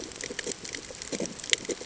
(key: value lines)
label: ambient
recorder: HydroMoth